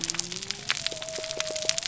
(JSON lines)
{"label": "biophony", "recorder": "SoundTrap 300"}